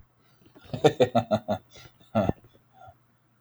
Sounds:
Laughter